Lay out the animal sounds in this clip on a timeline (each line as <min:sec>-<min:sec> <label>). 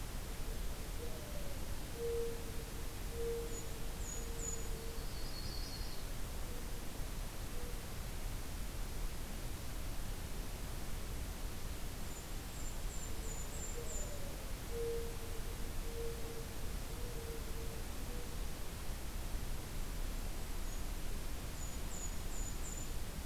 0:00.9-0:05.5 Mourning Dove (Zenaida macroura)
0:02.9-0:05.0 Golden-crowned Kinglet (Regulus satrapa)
0:04.7-0:06.3 Yellow-rumped Warbler (Setophaga coronata)
0:12.1-0:14.2 Golden-crowned Kinglet (Regulus satrapa)
0:13.1-0:18.6 Mourning Dove (Zenaida macroura)
0:19.7-0:23.3 Golden-crowned Kinglet (Regulus satrapa)